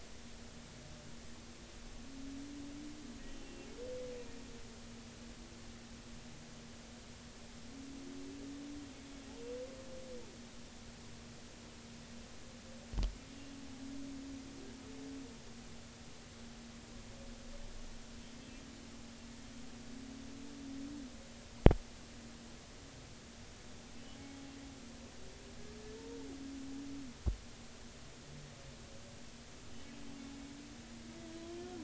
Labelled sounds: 3.2	3.7	humpback whale, 2.7 to 3.1 kHz

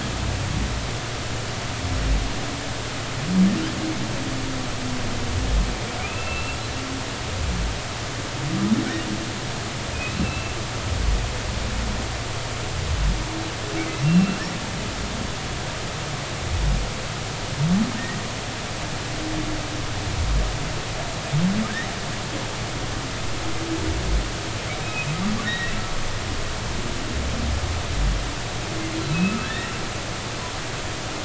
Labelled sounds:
6.0	6.6	humpback whale, 2.3 to 2.8 kHz
9.9	10.6	humpback whale, 2.4 to 2.8 kHz
14.0	14.4	humpback whale, 2.7 to 2.8 kHz
24.8	25.1	humpback whale, 2.4 to 2.6 kHz
25.4	25.8	humpback whale, 1.7 to 3.9 kHz
29.1	29.7	humpback whale, 1.5 to 2.7 kHz

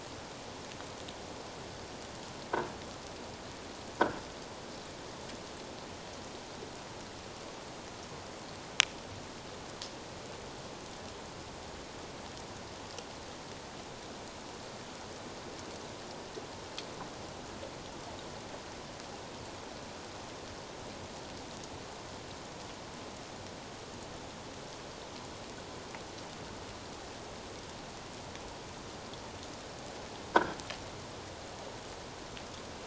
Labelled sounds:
30.3	30.6	croaking sound likely from a nearby submerged object, 1.3 to 1.7 kHz

